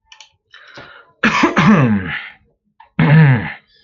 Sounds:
Throat clearing